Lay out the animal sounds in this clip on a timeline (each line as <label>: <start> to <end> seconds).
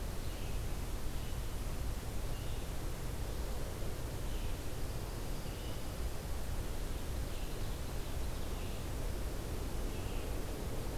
Red-eyed Vireo (Vireo olivaceus): 0.0 to 11.0 seconds
Dark-eyed Junco (Junco hyemalis): 4.6 to 6.2 seconds
Ovenbird (Seiurus aurocapilla): 6.9 to 8.7 seconds